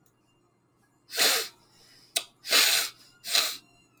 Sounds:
Sniff